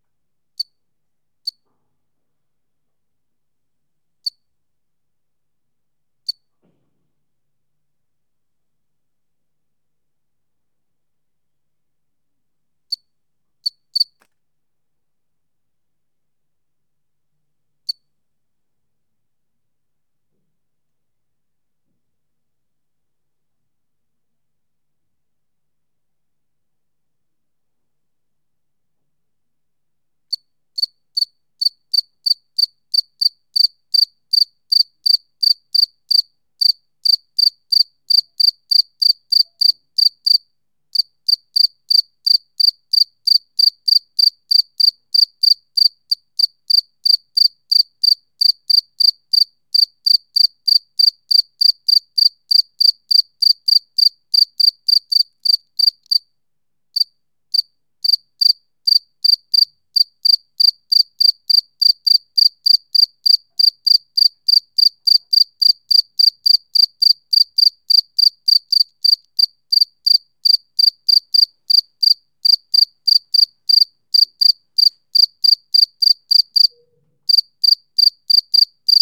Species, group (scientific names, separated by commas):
Gryllus bimaculatus, Orthoptera